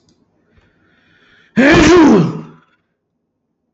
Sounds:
Sneeze